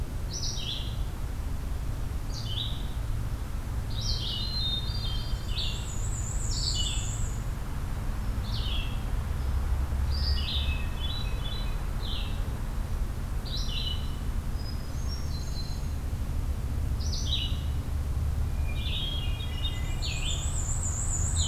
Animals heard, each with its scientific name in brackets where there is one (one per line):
Hermit Thrush (Catharus guttatus)
Red-eyed Vireo (Vireo olivaceus)
Black-and-white Warbler (Mniotilta varia)